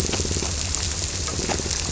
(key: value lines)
label: biophony, squirrelfish (Holocentrus)
recorder: SoundTrap 300

label: biophony
recorder: SoundTrap 300